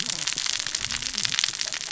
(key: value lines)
label: biophony, cascading saw
recorder: SoundTrap 600 or HydroMoth